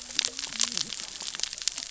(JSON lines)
{"label": "biophony, cascading saw", "recorder": "SoundTrap 600 or HydroMoth"}